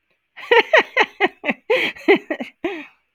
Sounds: Laughter